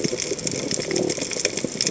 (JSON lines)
{"label": "biophony", "recorder": "HydroMoth"}